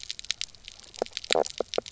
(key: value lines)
label: biophony, knock croak
recorder: SoundTrap 300